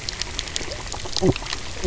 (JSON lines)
{"label": "biophony, knock croak", "recorder": "SoundTrap 300"}